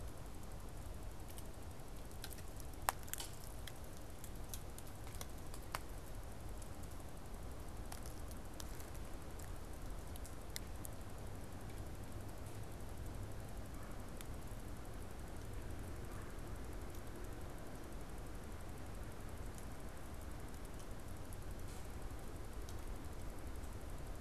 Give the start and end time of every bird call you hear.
[13.50, 14.10] Red-bellied Woodpecker (Melanerpes carolinus)
[15.80, 16.60] Red-bellied Woodpecker (Melanerpes carolinus)

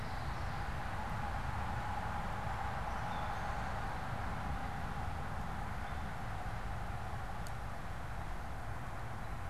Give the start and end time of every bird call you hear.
[0.00, 0.88] Common Yellowthroat (Geothlypis trichas)
[2.68, 3.78] Gray Catbird (Dumetella carolinensis)

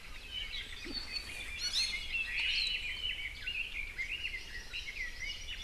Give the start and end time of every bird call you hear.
[0.00, 1.50] Apapane (Himatione sanguinea)
[1.50, 2.10] Iiwi (Drepanis coccinea)
[2.20, 2.90] Omao (Myadestes obscurus)
[2.40, 2.90] Hawaii Akepa (Loxops coccineus)
[2.70, 5.40] Red-billed Leiothrix (Leiothrix lutea)

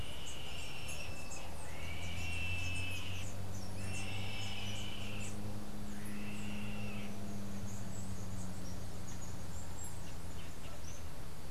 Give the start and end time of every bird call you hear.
[0.00, 6.14] Chestnut-capped Brushfinch (Arremon brunneinucha)
[0.00, 7.44] Yellow-headed Caracara (Milvago chimachima)
[7.04, 11.14] Chestnut-capped Brushfinch (Arremon brunneinucha)

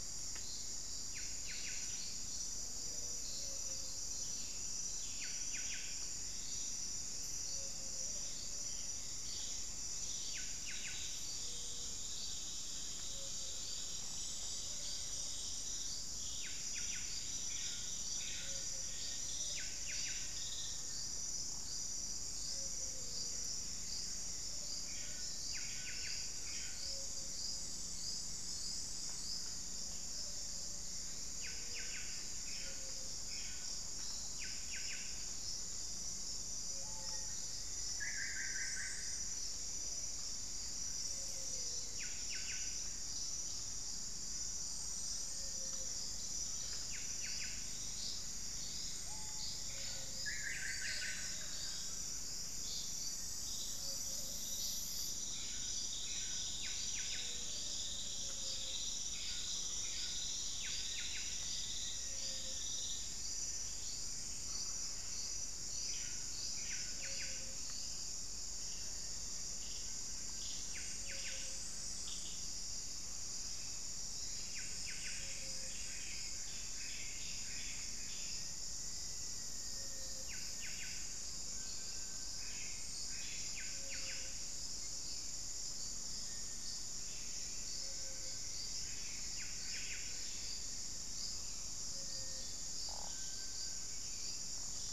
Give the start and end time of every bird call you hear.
[0.00, 35.21] Buff-breasted Wren (Cantorchilus leucotis)
[0.00, 94.93] Ruddy Quail-Dove (Geotrygon montana)
[18.81, 21.21] Black-faced Antthrush (Formicarius analis)
[26.91, 31.41] unidentified bird
[36.61, 37.51] Black-faced Cotinga (Conioptilon mcilhennyi)
[36.71, 39.11] Black-faced Antthrush (Formicarius analis)
[37.91, 39.31] Solitary Black Cacique (Cacicus solitarius)
[41.81, 94.93] Buff-breasted Wren (Cantorchilus leucotis)
[48.91, 49.81] Black-faced Cotinga (Conioptilon mcilhennyi)
[50.01, 51.41] Solitary Black Cacique (Cacicus solitarius)
[60.61, 63.01] Black-faced Antthrush (Formicarius analis)
[78.11, 80.51] Black-faced Antthrush (Formicarius analis)
[81.51, 82.41] Little Tinamou (Crypturellus soui)
[86.01, 86.91] Cinereous Tinamou (Crypturellus cinereus)
[87.11, 90.01] Black-faced Antthrush (Formicarius analis)
[91.81, 92.71] Cinereous Tinamou (Crypturellus cinereus)
[93.11, 94.93] Little Tinamou (Crypturellus soui)

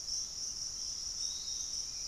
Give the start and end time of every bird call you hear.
[0.00, 0.72] unidentified bird
[0.00, 2.08] Piratic Flycatcher (Legatus leucophaius)

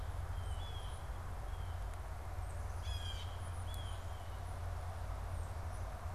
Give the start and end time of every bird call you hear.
[0.00, 2.71] Tufted Titmouse (Baeolophus bicolor)
[0.00, 4.51] Blue Jay (Cyanocitta cristata)
[3.41, 6.01] Tufted Titmouse (Baeolophus bicolor)

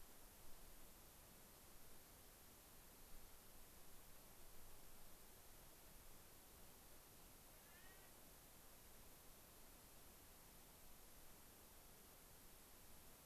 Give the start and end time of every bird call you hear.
[3.15, 3.35] unidentified bird
[7.55, 8.15] Clark's Nutcracker (Nucifraga columbiana)

